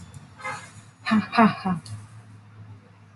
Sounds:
Laughter